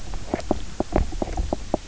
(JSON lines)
{"label": "biophony, knock croak", "recorder": "SoundTrap 300"}